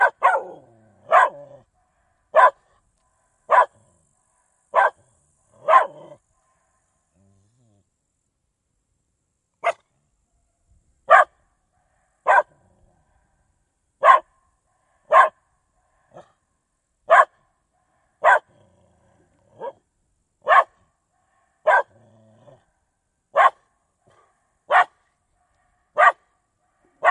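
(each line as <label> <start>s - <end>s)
A dog barks. 0.0s - 1.5s
A dog barks. 2.2s - 2.7s
A dog barks. 3.3s - 3.9s
A dog barks. 4.5s - 5.0s
A dog barks. 5.6s - 6.2s
A dog barks. 9.5s - 10.0s
A dog barks. 10.9s - 12.6s
A dog barks. 13.8s - 15.5s
A dog barks. 17.0s - 18.6s
A dog barks. 19.5s - 20.8s
A dog barks. 21.5s - 22.1s
A dog barks. 23.1s - 23.7s
A dog barks. 24.5s - 25.1s
A dog barks. 25.8s - 27.1s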